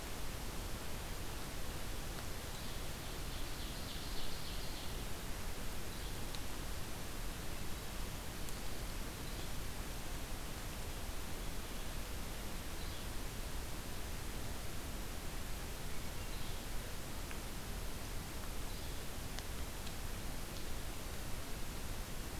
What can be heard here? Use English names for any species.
Yellow-bellied Flycatcher, Ovenbird, Hermit Thrush